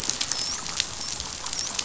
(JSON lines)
{"label": "biophony, dolphin", "recorder": "SoundTrap 500"}